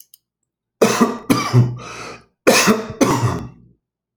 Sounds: Cough